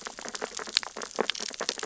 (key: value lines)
label: biophony, sea urchins (Echinidae)
recorder: SoundTrap 600 or HydroMoth